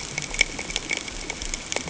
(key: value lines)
label: ambient
recorder: HydroMoth